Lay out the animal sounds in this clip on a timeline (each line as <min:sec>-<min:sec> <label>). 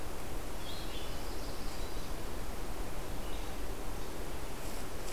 0:00.0-0:05.1 Red-eyed Vireo (Vireo olivaceus)
0:00.8-0:02.2 Yellow-rumped Warbler (Setophaga coronata)